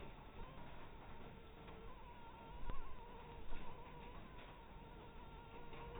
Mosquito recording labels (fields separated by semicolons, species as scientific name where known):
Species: Anopheles harrisoni; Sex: female; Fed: blood-fed; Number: one; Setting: cup